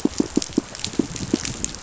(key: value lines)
label: biophony, pulse
recorder: SoundTrap 500